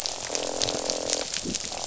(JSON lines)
{"label": "biophony, croak", "recorder": "SoundTrap 500"}